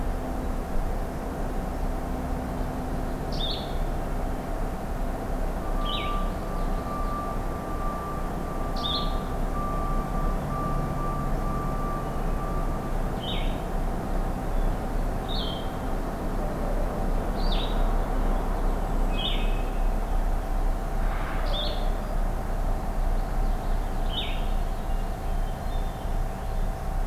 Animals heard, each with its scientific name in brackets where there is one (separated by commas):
Blue-headed Vireo (Vireo solitarius), Hermit Thrush (Catharus guttatus), Purple Finch (Haemorhous purpureus), Common Yellowthroat (Geothlypis trichas)